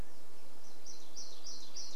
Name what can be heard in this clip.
warbler song